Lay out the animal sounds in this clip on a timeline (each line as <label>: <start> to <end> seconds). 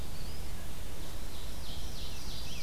Red-eyed Vireo (Vireo olivaceus): 0.0 to 2.6 seconds
Eastern Wood-Pewee (Contopus virens): 0.0 to 1.1 seconds
Ovenbird (Seiurus aurocapilla): 1.0 to 2.6 seconds